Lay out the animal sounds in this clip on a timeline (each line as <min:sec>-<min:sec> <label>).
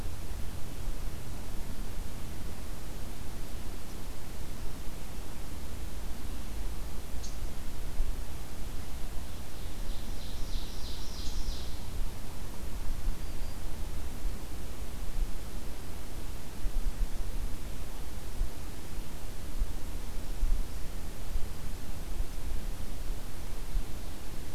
0:07.0-0:07.6 Red Squirrel (Tamiasciurus hudsonicus)
0:09.6-0:12.0 Ovenbird (Seiurus aurocapilla)
0:13.0-0:13.9 Black-capped Chickadee (Poecile atricapillus)